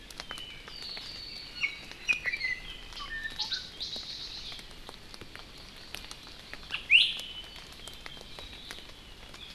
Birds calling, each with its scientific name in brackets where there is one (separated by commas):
Hawaii Amakihi (Chlorodrepanis virens), Apapane (Himatione sanguinea), Iiwi (Drepanis coccinea)